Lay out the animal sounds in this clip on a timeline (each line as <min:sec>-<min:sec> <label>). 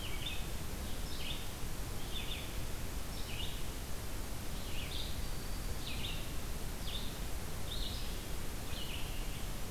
0:00.0-0:09.7 Red-eyed Vireo (Vireo olivaceus)
0:05.1-0:06.0 Black-throated Green Warbler (Setophaga virens)